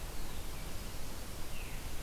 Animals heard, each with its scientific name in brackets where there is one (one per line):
Veery (Catharus fuscescens)